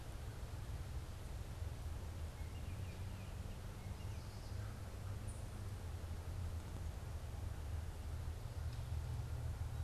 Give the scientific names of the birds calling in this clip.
Icterus galbula